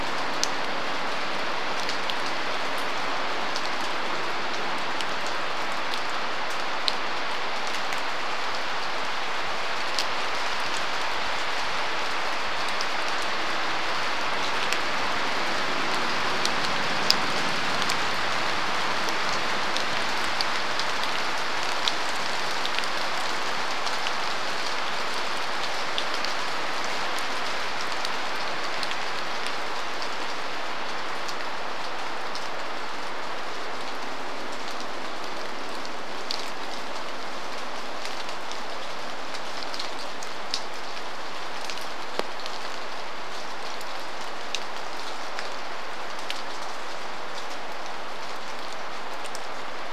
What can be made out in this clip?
vehicle engine, rain